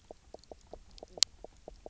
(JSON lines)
{"label": "biophony, knock croak", "recorder": "SoundTrap 300"}